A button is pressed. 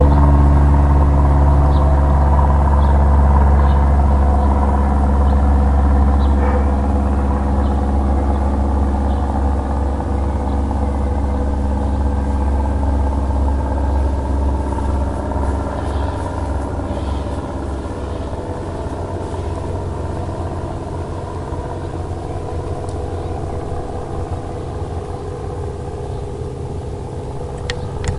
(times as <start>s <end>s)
27.4s 28.2s